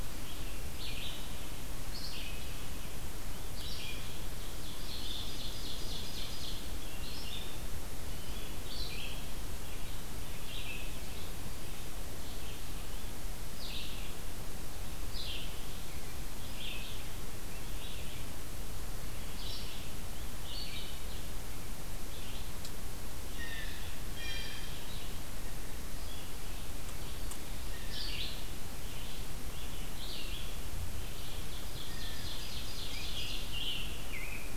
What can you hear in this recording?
Red-eyed Vireo, Ovenbird, Blue Jay, Scarlet Tanager